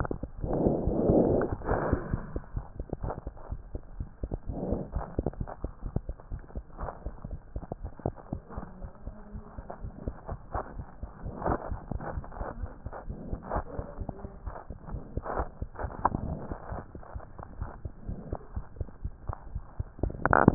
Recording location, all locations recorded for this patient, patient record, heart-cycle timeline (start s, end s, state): mitral valve (MV)
aortic valve (AV)+pulmonary valve (PV)+tricuspid valve (TV)+mitral valve (MV)
#Age: Child
#Sex: Female
#Height: 89.0 cm
#Weight: 14.1 kg
#Pregnancy status: False
#Murmur: Absent
#Murmur locations: nan
#Most audible location: nan
#Systolic murmur timing: nan
#Systolic murmur shape: nan
#Systolic murmur grading: nan
#Systolic murmur pitch: nan
#Systolic murmur quality: nan
#Diastolic murmur timing: nan
#Diastolic murmur shape: nan
#Diastolic murmur grading: nan
#Diastolic murmur pitch: nan
#Diastolic murmur quality: nan
#Outcome: Normal
#Campaign: 2015 screening campaign
0.00	16.49	unannotated
16.49	16.58	S2
16.58	16.70	diastole
16.70	16.78	S1
16.78	16.92	systole
16.92	17.00	S2
17.00	17.14	diastole
17.14	17.20	S1
17.20	17.38	systole
17.38	17.43	S2
17.43	17.60	diastole
17.60	17.69	S1
17.69	17.82	systole
17.82	17.92	S2
17.92	18.08	diastole
18.08	18.16	S1
18.16	18.28	systole
18.28	18.42	S2
18.42	18.56	diastole
18.56	18.63	S1
18.63	18.79	systole
18.79	18.84	S2
18.84	19.04	diastole
19.04	19.14	S1
19.14	19.24	systole
19.24	19.36	S2
19.36	19.50	diastole
19.50	19.64	S1
19.64	19.78	systole
19.78	19.88	S2
19.88	20.02	diastole
20.02	20.54	unannotated